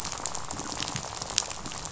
{"label": "biophony, rattle", "recorder": "SoundTrap 500"}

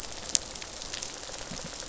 {"label": "biophony, rattle response", "recorder": "SoundTrap 500"}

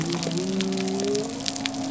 {"label": "biophony", "recorder": "SoundTrap 300"}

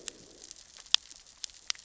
{"label": "biophony, growl", "recorder": "SoundTrap 600 or HydroMoth"}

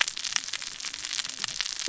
{"label": "biophony, cascading saw", "recorder": "SoundTrap 600 or HydroMoth"}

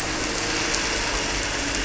{"label": "anthrophony, boat engine", "recorder": "SoundTrap 300"}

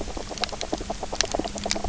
{"label": "anthrophony, boat engine", "recorder": "SoundTrap 300"}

